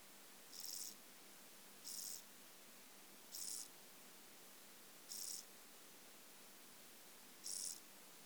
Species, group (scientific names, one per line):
Chorthippus brunneus
Orthoptera